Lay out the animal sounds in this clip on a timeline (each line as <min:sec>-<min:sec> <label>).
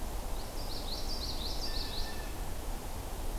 0:00.2-0:02.3 Common Yellowthroat (Geothlypis trichas)
0:01.5-0:02.5 Blue Jay (Cyanocitta cristata)